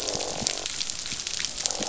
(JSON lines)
{"label": "biophony, croak", "recorder": "SoundTrap 500"}